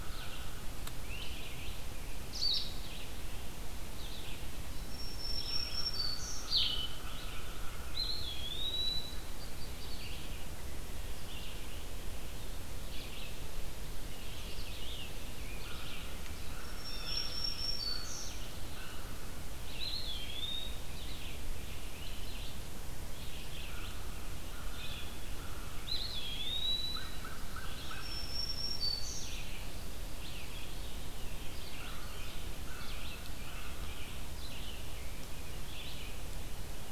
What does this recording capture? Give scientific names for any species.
Corvus brachyrhynchos, Vireo olivaceus, Vireo solitarius, Setophaga virens, Contopus virens, Melospiza melodia, Cyanocitta cristata, Piranga olivacea